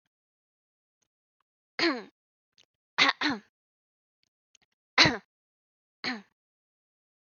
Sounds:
Throat clearing